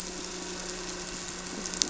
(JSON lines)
{"label": "anthrophony, boat engine", "recorder": "SoundTrap 300"}